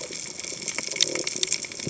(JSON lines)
{"label": "biophony", "recorder": "HydroMoth"}